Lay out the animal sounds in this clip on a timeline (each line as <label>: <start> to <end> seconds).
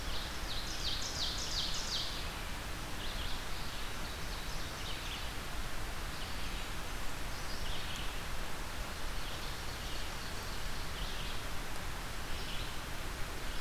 Ovenbird (Seiurus aurocapilla): 0.0 to 2.3 seconds
Red-eyed Vireo (Vireo olivaceus): 0.0 to 13.6 seconds
Ovenbird (Seiurus aurocapilla): 3.8 to 5.3 seconds
Ovenbird (Seiurus aurocapilla): 8.6 to 10.7 seconds